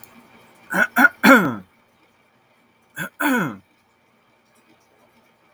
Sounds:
Throat clearing